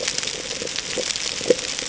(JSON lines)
{"label": "ambient", "recorder": "HydroMoth"}